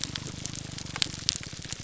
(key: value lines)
label: biophony, grouper groan
recorder: SoundTrap 300